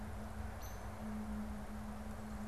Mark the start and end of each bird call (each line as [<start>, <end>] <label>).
[0.37, 0.97] Hairy Woodpecker (Dryobates villosus)